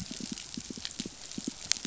{"label": "biophony, pulse", "recorder": "SoundTrap 500"}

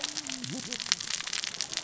{"label": "biophony, cascading saw", "recorder": "SoundTrap 600 or HydroMoth"}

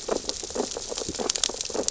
{"label": "biophony, sea urchins (Echinidae)", "recorder": "SoundTrap 600 or HydroMoth"}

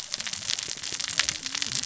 {"label": "biophony, cascading saw", "recorder": "SoundTrap 600 or HydroMoth"}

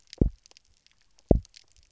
{"label": "biophony, double pulse", "recorder": "SoundTrap 300"}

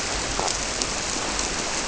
{"label": "biophony", "recorder": "SoundTrap 300"}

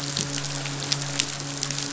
{"label": "biophony, midshipman", "recorder": "SoundTrap 500"}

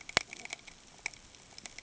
{"label": "ambient", "recorder": "HydroMoth"}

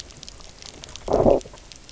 {"label": "biophony, low growl", "recorder": "SoundTrap 300"}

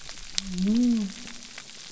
{"label": "biophony", "recorder": "SoundTrap 300"}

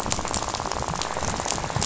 {"label": "biophony, rattle", "recorder": "SoundTrap 500"}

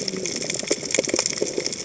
{"label": "biophony, cascading saw", "recorder": "HydroMoth"}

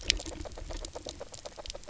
{"label": "biophony, knock croak", "recorder": "SoundTrap 300"}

